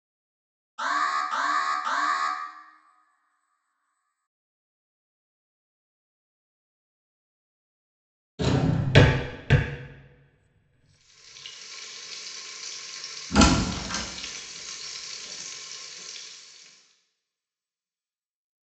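At the start, an alarm can be heard. Then about 8 seconds in, a drawer opens or closes. Next, about 11 seconds in, quiet frying is heard, fading in and later fading out. Over it, about 13 seconds in, a door opens.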